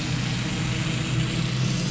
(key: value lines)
label: anthrophony, boat engine
recorder: SoundTrap 500